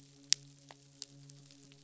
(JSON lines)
{"label": "biophony, midshipman", "recorder": "SoundTrap 500"}